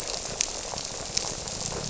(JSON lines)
{"label": "biophony", "recorder": "SoundTrap 300"}